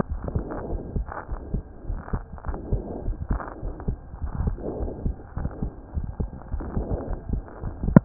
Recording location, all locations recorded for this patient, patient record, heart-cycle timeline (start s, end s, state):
aortic valve (AV)
aortic valve (AV)+pulmonary valve (PV)+tricuspid valve (TV)+mitral valve (MV)
#Age: Child
#Sex: Male
#Height: 129.0 cm
#Weight: 23.6 kg
#Pregnancy status: False
#Murmur: Absent
#Murmur locations: nan
#Most audible location: nan
#Systolic murmur timing: nan
#Systolic murmur shape: nan
#Systolic murmur grading: nan
#Systolic murmur pitch: nan
#Systolic murmur quality: nan
#Diastolic murmur timing: nan
#Diastolic murmur shape: nan
#Diastolic murmur grading: nan
#Diastolic murmur pitch: nan
#Diastolic murmur quality: nan
#Outcome: Normal
#Campaign: 2015 screening campaign
0.00	0.69	unannotated
0.69	0.82	S1
0.82	0.92	systole
0.92	1.06	S2
1.06	1.30	diastole
1.30	1.40	S1
1.40	1.50	systole
1.50	1.64	S2
1.64	1.86	diastole
1.86	2.00	S1
2.00	2.10	systole
2.10	2.24	S2
2.24	2.46	diastole
2.46	2.60	S1
2.60	2.70	systole
2.70	2.82	S2
2.82	3.04	diastole
3.04	3.18	S1
3.18	3.26	systole
3.26	3.40	S2
3.40	3.64	diastole
3.64	3.74	S1
3.74	3.86	systole
3.86	4.00	S2
4.00	4.22	diastole
4.22	4.34	S1
4.34	4.42	systole
4.42	4.58	S2
4.58	4.80	diastole
4.80	4.94	S1
4.94	5.04	systole
5.04	5.18	S2
5.18	5.40	diastole
5.40	5.54	S1
5.54	5.62	systole
5.62	5.72	S2
5.72	5.96	diastole
5.96	6.10	S1
6.10	6.18	systole
6.18	6.30	S2
6.30	6.52	diastole
6.52	6.64	S1
6.64	6.74	systole
6.74	6.84	S2
6.84	7.06	diastole
7.06	7.20	S1
7.20	7.32	systole
7.32	7.44	S2
7.44	7.64	diastole
7.64	7.76	S1
7.76	7.84	systole
7.84	7.95	S2
7.95	8.05	unannotated